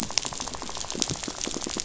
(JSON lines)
{"label": "biophony, rattle", "recorder": "SoundTrap 500"}
{"label": "biophony", "recorder": "SoundTrap 500"}